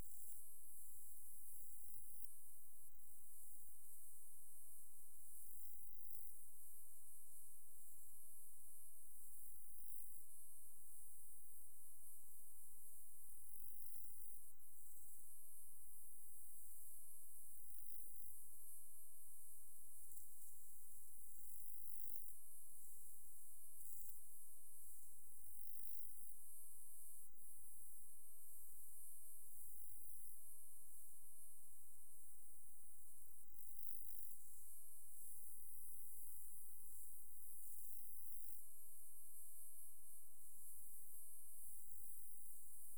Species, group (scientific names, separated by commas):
Saga hellenica, Orthoptera